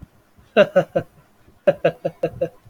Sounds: Laughter